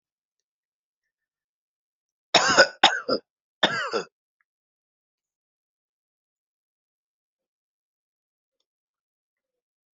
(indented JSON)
{
  "expert_labels": [
    {
      "quality": "good",
      "cough_type": "dry",
      "dyspnea": false,
      "wheezing": false,
      "stridor": false,
      "choking": false,
      "congestion": false,
      "nothing": true,
      "diagnosis": "healthy cough",
      "severity": "pseudocough/healthy cough"
    }
  ]
}